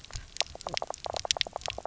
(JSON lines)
{"label": "biophony, knock croak", "recorder": "SoundTrap 300"}